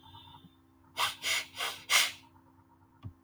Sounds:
Sniff